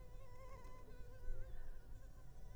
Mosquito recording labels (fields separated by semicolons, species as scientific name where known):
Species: Culex pipiens complex; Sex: female; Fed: unfed; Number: one; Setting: cup